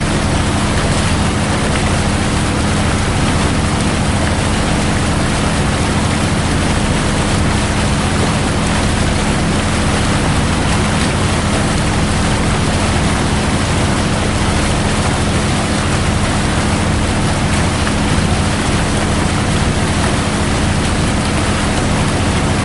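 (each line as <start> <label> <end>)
0.0 A diesel engine hums steadily while water washes around as a ship moves through the ocean. 22.6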